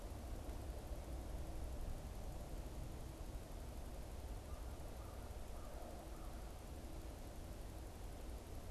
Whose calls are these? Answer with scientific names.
Corvus brachyrhynchos